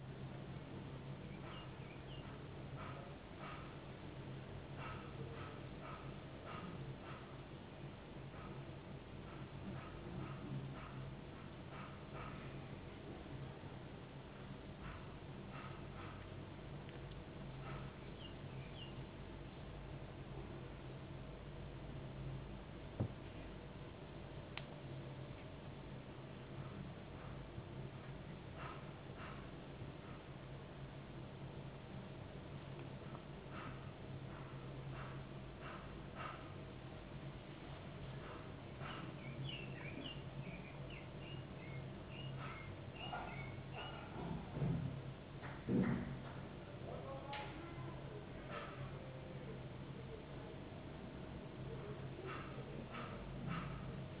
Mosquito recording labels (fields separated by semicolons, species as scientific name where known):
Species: no mosquito; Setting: insect culture